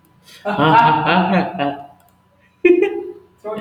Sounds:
Laughter